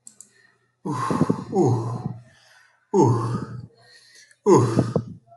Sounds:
Sneeze